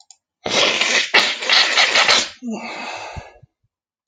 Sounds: Sniff